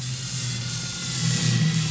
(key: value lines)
label: anthrophony, boat engine
recorder: SoundTrap 500